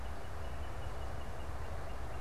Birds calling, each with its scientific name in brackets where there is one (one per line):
Northern Cardinal (Cardinalis cardinalis)